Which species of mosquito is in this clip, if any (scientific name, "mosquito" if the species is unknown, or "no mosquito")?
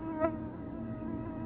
Culex tarsalis